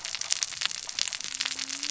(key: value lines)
label: biophony, cascading saw
recorder: SoundTrap 600 or HydroMoth